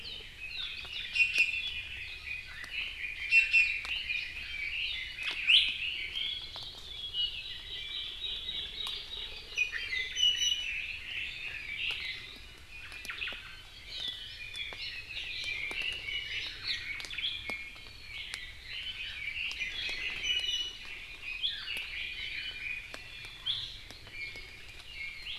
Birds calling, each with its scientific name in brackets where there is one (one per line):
Omao (Myadestes obscurus)
Hawaii Amakihi (Chlorodrepanis virens)
Red-billed Leiothrix (Leiothrix lutea)
Iiwi (Drepanis coccinea)